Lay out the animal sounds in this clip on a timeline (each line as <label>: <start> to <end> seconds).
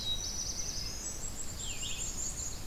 Black-throated Blue Warbler (Setophaga caerulescens): 0.0 to 1.2 seconds
Black-throated Green Warbler (Setophaga virens): 0.0 to 1.3 seconds
Red-eyed Vireo (Vireo olivaceus): 0.0 to 2.7 seconds
Black-capped Chickadee (Poecile atricapillus): 0.9 to 2.6 seconds
Chestnut-sided Warbler (Setophaga pensylvanica): 1.6 to 2.7 seconds